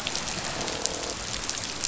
{"label": "biophony, croak", "recorder": "SoundTrap 500"}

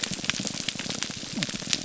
{"label": "biophony, grouper groan", "recorder": "SoundTrap 300"}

